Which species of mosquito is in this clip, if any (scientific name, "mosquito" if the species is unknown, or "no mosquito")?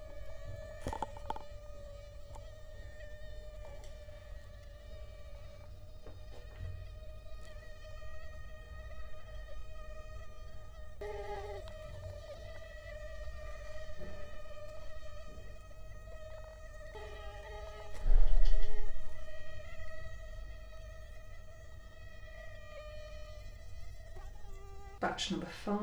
Culex quinquefasciatus